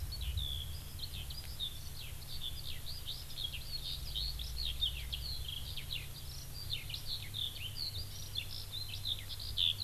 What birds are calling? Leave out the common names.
Alauda arvensis